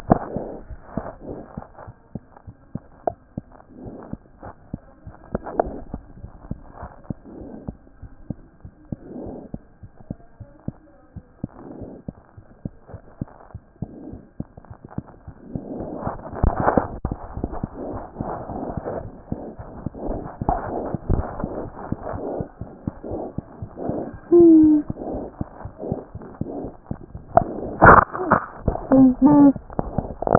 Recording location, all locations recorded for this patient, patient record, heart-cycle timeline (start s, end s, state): mitral valve (MV)
aortic valve (AV)+mitral valve (MV)
#Age: Infant
#Sex: Male
#Height: nan
#Weight: 9.3 kg
#Pregnancy status: False
#Murmur: Absent
#Murmur locations: nan
#Most audible location: nan
#Systolic murmur timing: nan
#Systolic murmur shape: nan
#Systolic murmur grading: nan
#Systolic murmur pitch: nan
#Systolic murmur quality: nan
#Diastolic murmur timing: nan
#Diastolic murmur shape: nan
#Diastolic murmur grading: nan
#Diastolic murmur pitch: nan
#Diastolic murmur quality: nan
#Outcome: Normal
#Campaign: 2014 screening campaign
0.00	1.74	unannotated
1.74	1.86	diastole
1.86	1.94	S1
1.94	2.14	systole
2.14	2.22	S2
2.22	2.48	diastole
2.48	2.56	S1
2.56	2.74	systole
2.74	2.82	S2
2.82	3.08	diastole
3.08	3.18	S1
3.18	3.36	systole
3.36	3.44	S2
3.44	3.82	diastole
3.82	3.92	S1
3.92	4.10	systole
4.10	4.18	S2
4.18	4.44	diastole
4.44	4.52	S1
4.52	4.72	systole
4.72	4.80	S2
4.80	5.06	diastole
5.06	30.38	unannotated